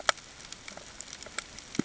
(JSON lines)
{"label": "ambient", "recorder": "HydroMoth"}